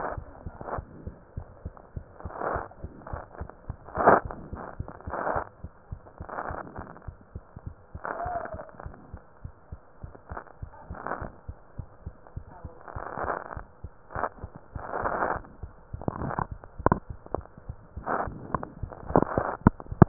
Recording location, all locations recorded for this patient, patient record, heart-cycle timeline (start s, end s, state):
mitral valve (MV)
aortic valve (AV)+pulmonary valve (PV)+tricuspid valve (TV)+mitral valve (MV)
#Age: Child
#Sex: Female
#Height: 104.0 cm
#Weight: 20.8 kg
#Pregnancy status: False
#Murmur: Absent
#Murmur locations: nan
#Most audible location: nan
#Systolic murmur timing: nan
#Systolic murmur shape: nan
#Systolic murmur grading: nan
#Systolic murmur pitch: nan
#Systolic murmur quality: nan
#Diastolic murmur timing: nan
#Diastolic murmur shape: nan
#Diastolic murmur grading: nan
#Diastolic murmur pitch: nan
#Diastolic murmur quality: nan
#Outcome: Normal
#Campaign: 2015 screening campaign
0.00	1.09	unannotated
1.09	1.14	S2
1.14	1.35	diastole
1.35	1.48	S1
1.48	1.62	systole
1.62	1.74	S2
1.74	1.93	diastole
1.93	2.06	S1
2.06	2.23	systole
2.23	2.32	S2
2.32	2.54	diastole
2.54	2.64	S1
2.64	2.82	systole
2.82	2.92	S2
2.92	3.10	diastole
3.10	3.24	S1
3.24	3.38	systole
3.38	3.50	S2
3.50	3.67	diastole
3.67	3.76	S1
3.76	3.91	systole
3.91	3.96	S2
3.96	4.20	diastole
4.20	4.31	S1
4.31	4.49	systole
4.50	4.57	S2
4.57	4.77	diastole
4.77	4.85	S1
4.85	5.04	systole
5.04	5.13	S2
5.13	5.33	diastole
5.33	5.47	S1
5.47	5.63	systole
5.63	5.71	S2
5.71	5.87	diastole
5.87	5.98	S1
5.98	6.17	systole
6.17	6.27	S2
6.27	6.43	diastole
6.43	6.47	S1
6.47	20.08	unannotated